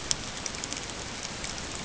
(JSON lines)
{"label": "ambient", "recorder": "HydroMoth"}